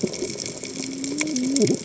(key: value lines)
label: biophony, cascading saw
recorder: HydroMoth